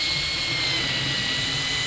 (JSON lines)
{"label": "anthrophony, boat engine", "recorder": "SoundTrap 500"}